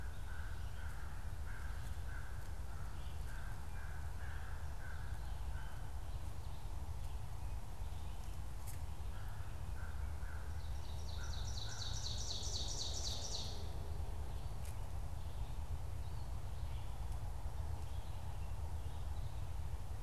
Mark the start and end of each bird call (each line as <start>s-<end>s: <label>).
0.0s-12.2s: American Crow (Corvus brachyrhynchos)
10.4s-14.0s: Ovenbird (Seiurus aurocapilla)